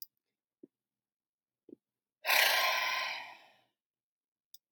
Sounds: Sigh